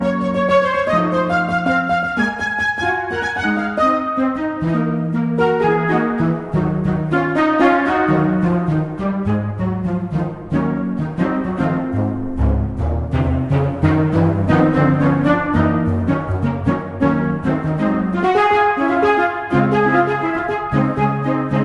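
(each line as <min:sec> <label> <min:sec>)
0:00.0 A musician plays the piano quickly and harmoniously with alternating jazz notes. 0:21.6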